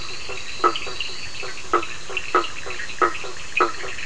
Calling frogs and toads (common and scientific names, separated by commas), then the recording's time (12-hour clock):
two-colored oval frog (Elachistocleis bicolor), blacksmith tree frog (Boana faber), fine-lined tree frog (Boana leptolineata), Cochran's lime tree frog (Sphaenorhynchus surdus)
10:15pm